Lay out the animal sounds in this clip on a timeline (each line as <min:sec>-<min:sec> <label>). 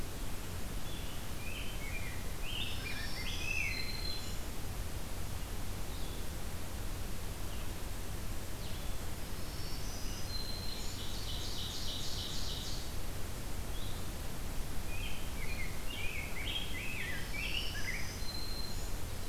0:00.8-0:04.3 Rose-breasted Grosbeak (Pheucticus ludovicianus)
0:02.5-0:04.6 Black-throated Green Warbler (Setophaga virens)
0:05.7-0:14.1 Blue-headed Vireo (Vireo solitarius)
0:09.2-0:11.1 Black-throated Green Warbler (Setophaga virens)
0:10.6-0:13.0 Ovenbird (Seiurus aurocapilla)
0:14.8-0:18.1 Rose-breasted Grosbeak (Pheucticus ludovicianus)
0:17.1-0:19.0 Black-throated Green Warbler (Setophaga virens)